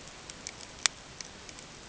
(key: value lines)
label: ambient
recorder: HydroMoth